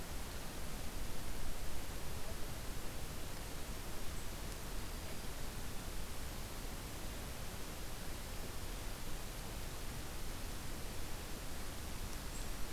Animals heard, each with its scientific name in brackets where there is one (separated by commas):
Black-throated Green Warbler (Setophaga virens)